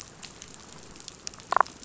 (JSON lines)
{"label": "biophony, damselfish", "recorder": "SoundTrap 500"}